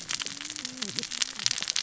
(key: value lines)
label: biophony, cascading saw
recorder: SoundTrap 600 or HydroMoth